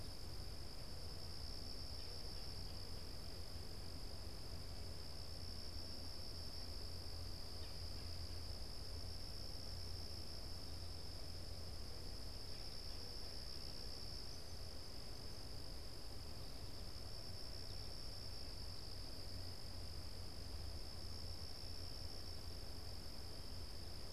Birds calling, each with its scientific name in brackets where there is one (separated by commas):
Red-bellied Woodpecker (Melanerpes carolinus)